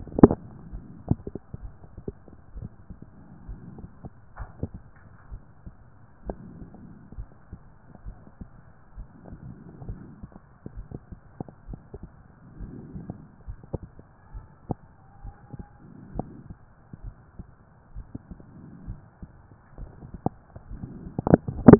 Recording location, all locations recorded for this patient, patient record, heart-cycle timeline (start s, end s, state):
mitral valve (MV)
pulmonary valve (PV)+tricuspid valve (TV)+mitral valve (MV)
#Age: nan
#Sex: Female
#Height: nan
#Weight: nan
#Pregnancy status: True
#Murmur: Absent
#Murmur locations: nan
#Most audible location: nan
#Systolic murmur timing: nan
#Systolic murmur shape: nan
#Systolic murmur grading: nan
#Systolic murmur pitch: nan
#Systolic murmur quality: nan
#Diastolic murmur timing: nan
#Diastolic murmur shape: nan
#Diastolic murmur grading: nan
#Diastolic murmur pitch: nan
#Diastolic murmur quality: nan
#Outcome: Normal
#Campaign: 2014 screening campaign
0.00	2.62	unannotated
2.62	2.68	S1
2.68	2.88	systole
2.88	2.96	S2
2.96	3.48	diastole
3.48	3.60	S1
3.60	3.78	systole
3.78	3.88	S2
3.88	4.38	diastole
4.38	4.50	S1
4.50	4.64	systole
4.64	4.72	S2
4.72	5.30	diastole
5.30	5.42	S1
5.42	5.62	systole
5.62	5.72	S2
5.72	6.26	diastole
6.26	6.38	S1
6.38	6.56	systole
6.56	6.66	S2
6.66	7.16	diastole
7.16	7.28	S1
7.28	7.50	systole
7.50	7.58	S2
7.58	8.04	diastole
8.04	8.16	S1
8.16	8.38	systole
8.38	8.48	S2
8.48	8.96	diastole
8.96	9.08	S1
9.08	9.26	systole
9.26	9.38	S2
9.38	9.86	diastole
9.86	9.98	S1
9.98	10.20	systole
10.20	10.28	S2
10.28	10.76	diastole
10.76	10.86	S1
10.86	11.08	systole
11.08	11.18	S2
11.18	11.68	diastole
11.68	11.80	S1
11.80	11.96	systole
11.96	12.06	S2
12.06	12.60	diastole
12.60	12.72	S1
12.72	12.94	systole
12.94	13.04	S2
13.04	13.46	diastole
13.46	13.58	S1
13.58	13.74	systole
13.74	13.84	S2
13.84	14.34	diastole
14.34	14.46	S1
14.46	14.68	systole
14.68	14.78	S2
14.78	15.22	diastole
15.22	15.34	S1
15.34	15.54	systole
15.54	15.64	S2
15.64	16.14	diastole
16.14	16.26	S1
16.26	16.46	systole
16.46	16.56	S2
16.56	17.04	diastole
17.04	17.14	S1
17.14	17.36	systole
17.36	17.46	S2
17.46	17.94	diastole
17.94	18.06	S1
18.06	18.28	systole
18.28	18.36	S2
18.36	18.86	diastole
18.86	18.98	S1
18.98	19.20	systole
19.20	19.28	S2
19.28	19.80	diastole
19.80	19.90	S1
19.90	20.06	systole
20.06	20.12	S2
20.12	21.79	unannotated